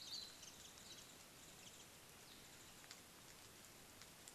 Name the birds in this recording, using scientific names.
Zosterops japonicus